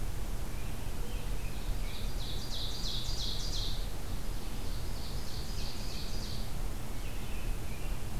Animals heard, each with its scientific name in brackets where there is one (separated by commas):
American Robin (Turdus migratorius), Ovenbird (Seiurus aurocapilla)